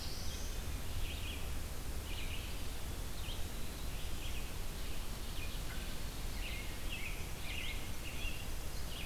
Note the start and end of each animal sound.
[0.00, 0.79] Black-throated Blue Warbler (Setophaga caerulescens)
[0.00, 9.06] Red-eyed Vireo (Vireo olivaceus)
[2.40, 3.94] Eastern Wood-Pewee (Contopus virens)
[6.26, 8.61] American Robin (Turdus migratorius)

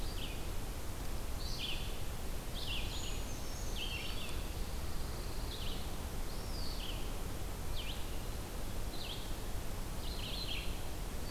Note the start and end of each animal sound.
[0.00, 11.31] Red-eyed Vireo (Vireo olivaceus)
[2.80, 4.22] Brown Creeper (Certhia americana)
[4.22, 5.82] Pine Warbler (Setophaga pinus)
[6.18, 7.03] Eastern Wood-Pewee (Contopus virens)

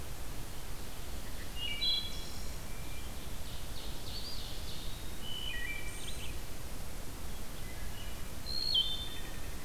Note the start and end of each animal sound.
[1.36, 2.67] Wood Thrush (Hylocichla mustelina)
[2.59, 3.47] Hermit Thrush (Catharus guttatus)
[2.93, 5.14] Ovenbird (Seiurus aurocapilla)
[4.03, 5.14] Eastern Wood-Pewee (Contopus virens)
[5.09, 6.38] Wood Thrush (Hylocichla mustelina)
[5.82, 6.49] Red-eyed Vireo (Vireo olivaceus)
[7.56, 9.65] Wood Thrush (Hylocichla mustelina)

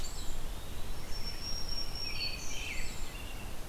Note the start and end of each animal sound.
[0.00, 1.10] Eastern Wood-Pewee (Contopus virens)
[0.81, 2.71] Black-throated Green Warbler (Setophaga virens)
[0.92, 3.60] American Robin (Turdus migratorius)

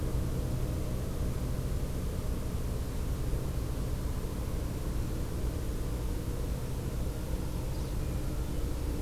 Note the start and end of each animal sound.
[7.39, 8.00] Magnolia Warbler (Setophaga magnolia)
[7.90, 9.02] Hermit Thrush (Catharus guttatus)

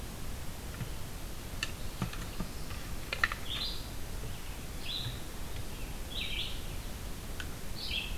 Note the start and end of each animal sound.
[1.53, 2.83] Black-throated Blue Warbler (Setophaga caerulescens)
[3.12, 8.17] Red-eyed Vireo (Vireo olivaceus)

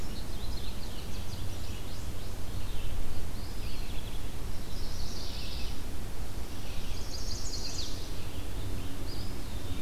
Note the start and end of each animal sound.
[0.00, 2.52] Indigo Bunting (Passerina cyanea)
[1.38, 9.81] Red-eyed Vireo (Vireo olivaceus)
[3.29, 4.02] Eastern Wood-Pewee (Contopus virens)
[4.49, 5.83] Chestnut-sided Warbler (Setophaga pensylvanica)
[6.83, 8.06] Chestnut-sided Warbler (Setophaga pensylvanica)
[7.53, 9.20] Scarlet Tanager (Piranga olivacea)
[8.98, 9.81] Eastern Wood-Pewee (Contopus virens)

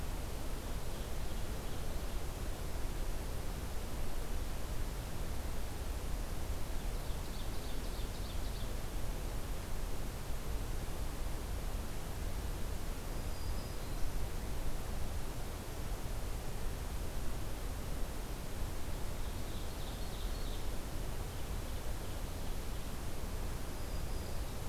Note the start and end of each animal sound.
[6.80, 8.77] Ovenbird (Seiurus aurocapilla)
[12.97, 14.29] Black-throated Green Warbler (Setophaga virens)
[18.88, 20.70] Ovenbird (Seiurus aurocapilla)
[20.99, 23.23] Ovenbird (Seiurus aurocapilla)
[23.59, 24.69] Black-throated Green Warbler (Setophaga virens)

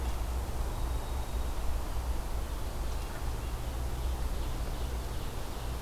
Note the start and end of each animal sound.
[0.56, 2.25] White-throated Sparrow (Zonotrichia albicollis)
[3.64, 5.81] Ovenbird (Seiurus aurocapilla)

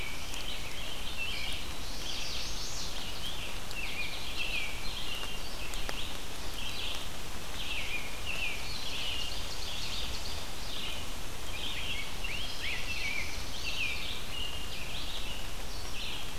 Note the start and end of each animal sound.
[0.00, 1.72] American Robin (Turdus migratorius)
[0.00, 16.38] Red-eyed Vireo (Vireo olivaceus)
[1.67, 2.97] Chestnut-sided Warbler (Setophaga pensylvanica)
[2.98, 6.15] American Robin (Turdus migratorius)
[7.50, 9.49] American Robin (Turdus migratorius)
[8.36, 10.44] Ovenbird (Seiurus aurocapilla)
[11.51, 14.07] Rose-breasted Grosbeak (Pheucticus ludovicianus)
[12.19, 13.91] Black-throated Blue Warbler (Setophaga caerulescens)
[13.49, 15.45] American Robin (Turdus migratorius)

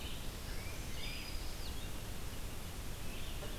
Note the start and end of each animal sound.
[0.00, 3.59] Red-eyed Vireo (Vireo olivaceus)
[0.11, 1.65] Black-throated Green Warbler (Setophaga virens)
[0.44, 1.71] Tufted Titmouse (Baeolophus bicolor)

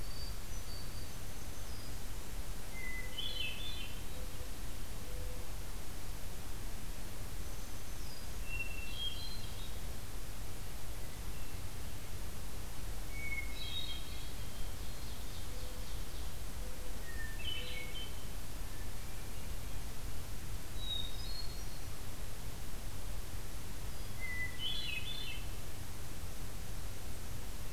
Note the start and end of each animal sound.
[0.00, 1.28] Hermit Thrush (Catharus guttatus)
[0.90, 2.03] Black-throated Green Warbler (Setophaga virens)
[2.67, 4.25] Hermit Thrush (Catharus guttatus)
[7.32, 8.42] Black-throated Green Warbler (Setophaga virens)
[8.35, 9.75] Hermit Thrush (Catharus guttatus)
[10.92, 11.82] Hermit Thrush (Catharus guttatus)
[13.07, 15.50] Hermit Thrush (Catharus guttatus)
[14.50, 16.42] Ovenbird (Seiurus aurocapilla)
[15.43, 18.05] Mourning Dove (Zenaida macroura)
[17.03, 19.98] Hermit Thrush (Catharus guttatus)
[20.62, 22.07] Hermit Thrush (Catharus guttatus)
[24.05, 25.59] Hermit Thrush (Catharus guttatus)

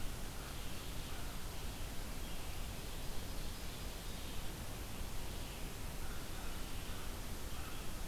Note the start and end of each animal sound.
[0.00, 1.41] American Crow (Corvus brachyrhynchos)
[0.00, 8.08] Red-eyed Vireo (Vireo olivaceus)
[2.25, 4.31] Ovenbird (Seiurus aurocapilla)
[5.96, 8.04] American Crow (Corvus brachyrhynchos)

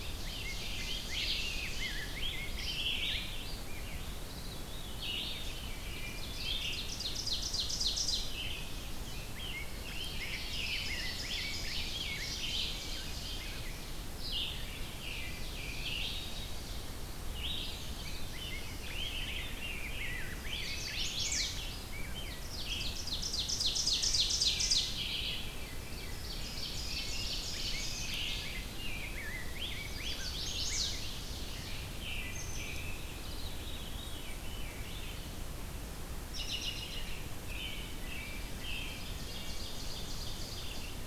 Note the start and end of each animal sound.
[0.00, 2.39] Ovenbird (Seiurus aurocapilla)
[0.00, 3.62] Rose-breasted Grosbeak (Pheucticus ludovicianus)
[0.00, 32.79] Red-eyed Vireo (Vireo olivaceus)
[4.18, 6.31] Veery (Catharus fuscescens)
[5.69, 6.37] Wood Thrush (Hylocichla mustelina)
[6.10, 9.30] Ovenbird (Seiurus aurocapilla)
[8.91, 13.66] Rose-breasted Grosbeak (Pheucticus ludovicianus)
[9.87, 17.01] Ovenbird (Seiurus aurocapilla)
[17.61, 18.87] Veery (Catharus fuscescens)
[18.09, 22.55] Rose-breasted Grosbeak (Pheucticus ludovicianus)
[20.27, 21.70] Chestnut-sided Warbler (Setophaga pensylvanica)
[22.30, 25.17] Ovenbird (Seiurus aurocapilla)
[23.86, 25.07] Wood Thrush (Hylocichla mustelina)
[25.34, 26.62] Veery (Catharus fuscescens)
[25.54, 28.26] Ovenbird (Seiurus aurocapilla)
[26.84, 31.21] Rose-breasted Grosbeak (Pheucticus ludovicianus)
[27.85, 28.72] Wood Thrush (Hylocichla mustelina)
[29.67, 31.13] Chestnut-sided Warbler (Setophaga pensylvanica)
[30.16, 31.84] Ovenbird (Seiurus aurocapilla)
[31.92, 33.12] American Robin (Turdus migratorius)
[32.86, 35.16] Veery (Catharus fuscescens)
[36.20, 39.01] American Robin (Turdus migratorius)
[38.76, 41.00] Ovenbird (Seiurus aurocapilla)
[39.17, 39.72] Wood Thrush (Hylocichla mustelina)

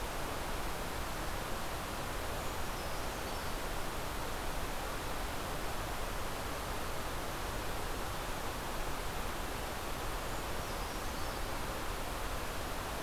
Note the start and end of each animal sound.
[2.03, 3.90] Brown Creeper (Certhia americana)
[10.18, 11.84] Brown Creeper (Certhia americana)

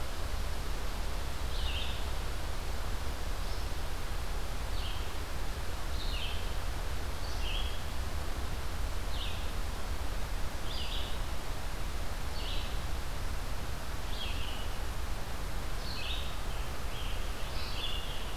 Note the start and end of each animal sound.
[0.00, 18.36] Red-eyed Vireo (Vireo olivaceus)
[16.01, 18.36] Scarlet Tanager (Piranga olivacea)

